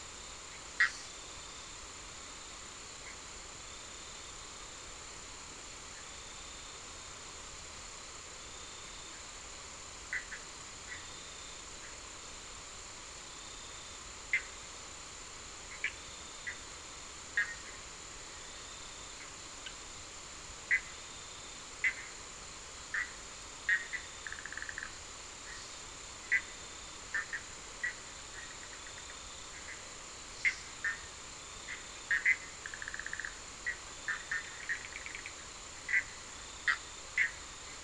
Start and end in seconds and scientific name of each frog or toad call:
0.6	1.3	Boana bischoffi
3.0	3.3	Boana bischoffi
9.8	37.8	Boana bischoffi